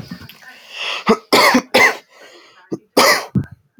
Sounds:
Cough